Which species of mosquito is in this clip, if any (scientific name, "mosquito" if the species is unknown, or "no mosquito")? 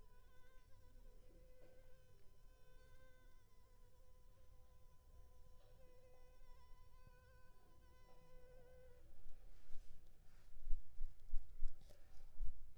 Culex pipiens complex